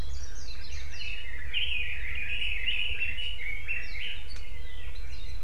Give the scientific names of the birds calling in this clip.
Leiothrix lutea